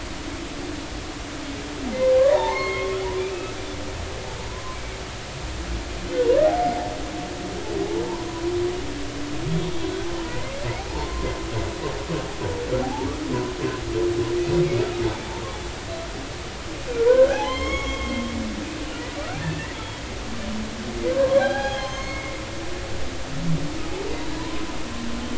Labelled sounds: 2.1	3.0	humpback whale, 0.80 to 4.4 kHz
4.7	5.0	humpback whale, 2.1 to 2.4 kHz
9.5	11.3	humpback whale, 0.80 to 3.4 kHz
12.8	13.1	humpback whale, 0.80 to 0.96 kHz
14.6	14.9	humpback whale, 2.1 to 2.5 kHz
17.1	18.3	humpback whale, 0.80 to 6.7 kHz
19.2	19.8	humpback whale, 1.1 to 2.0 kHz
21.3	22.3	humpback whale, 0.80 to 6.6 kHz
24.4	24.6	humpback whale, 0.90 to 1.1 kHz

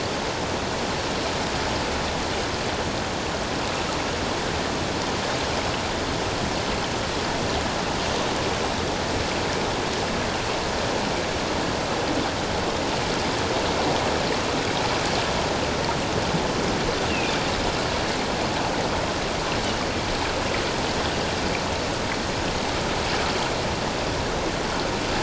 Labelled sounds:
17.1	17.4	Pacific white-sided dolphin, 2.3 to 2.9 kHz

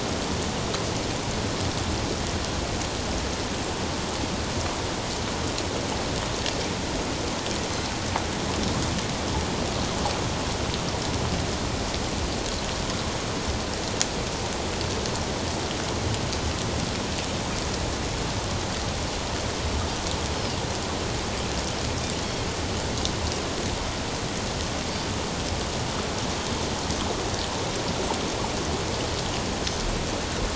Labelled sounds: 22.2	22.5	Pacific white-sided dolphin, 3.1 to 3.4 kHz

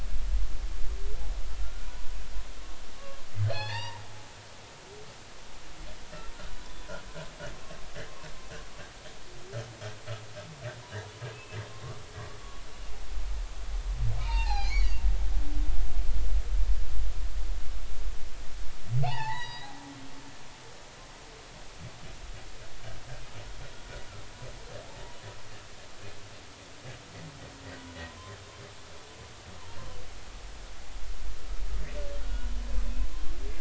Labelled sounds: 1.6	1.9	humpback whale, 1.3 to 1.5 kHz
3.0	4.0	humpback whale, 0.80 to 4.4 kHz
6.5	6.9	humpback whale, 0.96 to 3.6 kHz
11.3	11.6	humpback whale, 2.5 to 2.7 kHz
14.2	14.9	humpback whale, 0.80 to 6.8 kHz
19.0	19.8	humpback whale, 0.80 to 4.9 kHz
27.7	28.4	humpback whale, 0.93 to 1.6 kHz
32.2	32.5	humpback whale, 1.4 to 1.5 kHz

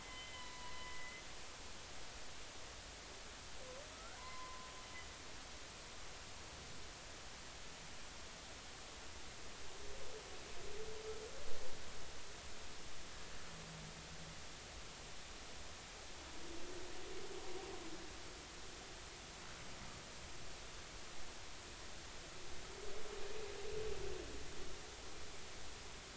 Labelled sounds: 0.0	1.2	humpback whale, 0.93 to 3.1 kHz
3.9	4.2	humpback whale, 1.2 to 1.7 kHz
5.2	5.7	humpback whale, 0.93 to 1.1 kHz

